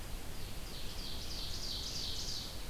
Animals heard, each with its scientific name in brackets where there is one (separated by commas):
Ovenbird (Seiurus aurocapilla), Red-eyed Vireo (Vireo olivaceus)